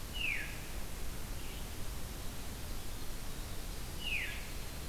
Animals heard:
Veery (Catharus fuscescens), Winter Wren (Troglodytes hiemalis)

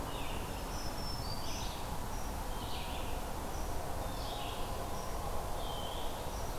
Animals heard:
Black-throated Green Warbler (Setophaga virens), Eastern Wood-Pewee (Contopus virens), Red-eyed Vireo (Vireo olivaceus)

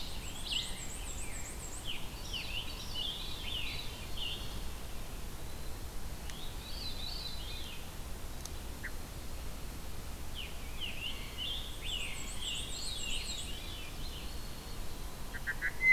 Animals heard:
Scarlet Tanager (Piranga olivacea), Black-and-white Warbler (Mniotilta varia), Red-eyed Vireo (Vireo olivaceus), Wood Thrush (Hylocichla mustelina), Veery (Catharus fuscescens)

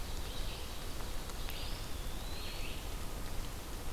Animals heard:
Eastern Wood-Pewee (Contopus virens), Red-eyed Vireo (Vireo olivaceus)

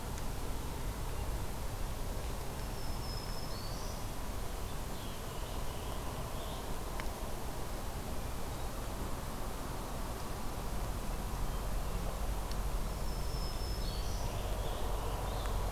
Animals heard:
Black-throated Green Warbler (Setophaga virens), American Robin (Turdus migratorius)

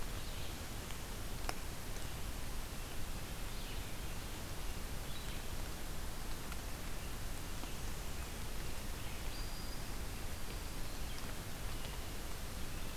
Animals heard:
Red-eyed Vireo (Vireo olivaceus), Black-throated Green Warbler (Setophaga virens)

